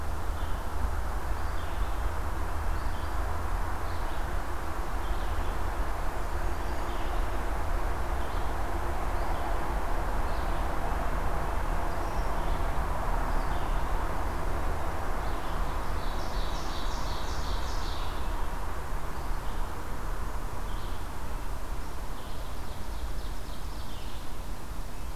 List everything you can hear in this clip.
Red-eyed Vireo, Blackburnian Warbler, Ovenbird